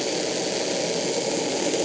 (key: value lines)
label: anthrophony, boat engine
recorder: HydroMoth